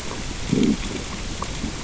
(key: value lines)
label: biophony, growl
recorder: SoundTrap 600 or HydroMoth